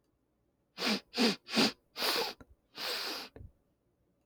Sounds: Sniff